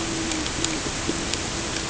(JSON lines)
{"label": "ambient", "recorder": "HydroMoth"}